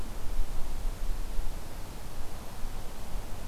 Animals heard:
forest ambience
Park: Acadia National Park